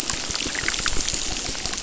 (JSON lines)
{"label": "biophony, crackle", "recorder": "SoundTrap 600"}